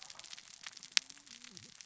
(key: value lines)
label: biophony, cascading saw
recorder: SoundTrap 600 or HydroMoth